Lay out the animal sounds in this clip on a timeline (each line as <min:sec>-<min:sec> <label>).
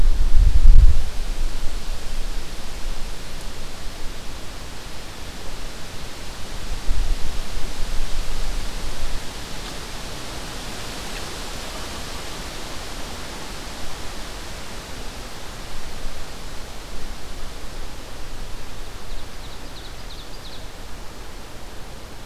0:18.8-0:20.8 Ovenbird (Seiurus aurocapilla)